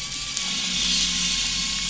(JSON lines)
{"label": "anthrophony, boat engine", "recorder": "SoundTrap 500"}